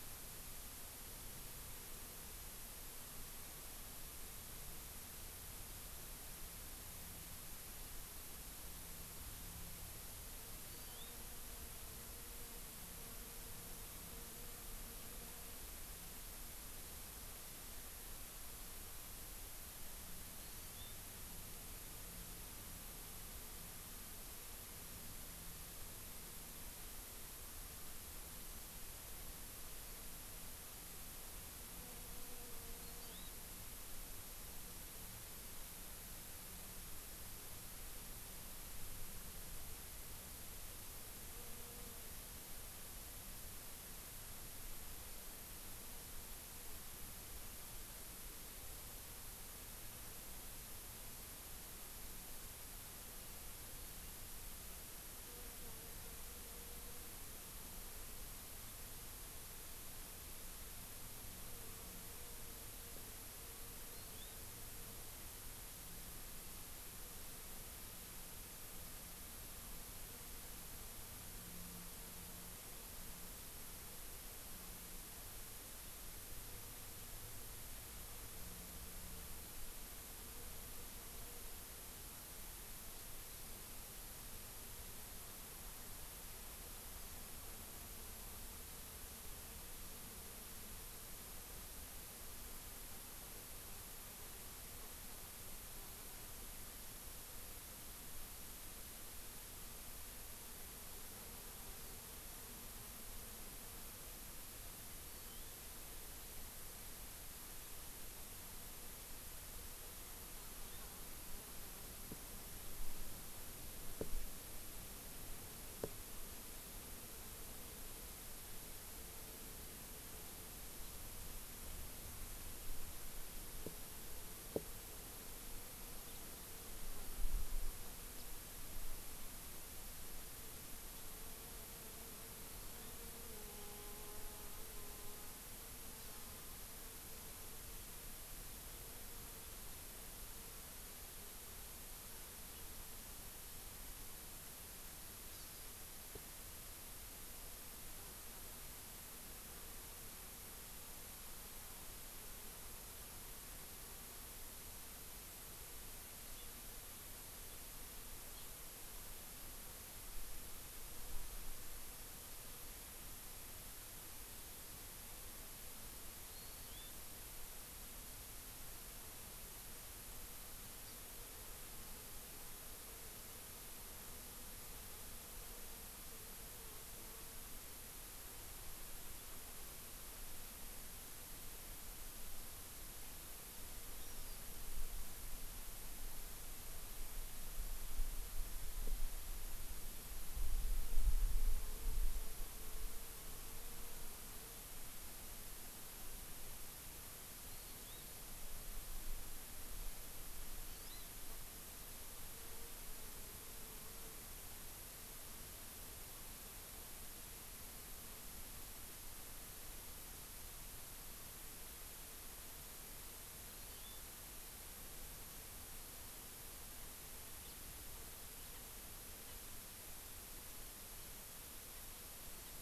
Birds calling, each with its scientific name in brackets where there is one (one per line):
Hawaii Amakihi (Chlorodrepanis virens)
House Finch (Haemorhous mexicanus)